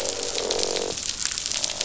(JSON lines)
{"label": "biophony, croak", "recorder": "SoundTrap 500"}